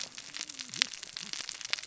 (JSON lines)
{"label": "biophony, cascading saw", "recorder": "SoundTrap 600 or HydroMoth"}